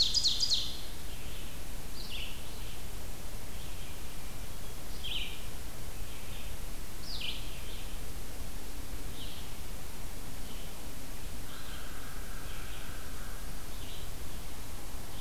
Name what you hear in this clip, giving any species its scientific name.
Seiurus aurocapilla, Vireo olivaceus, Catharus guttatus, Corvus brachyrhynchos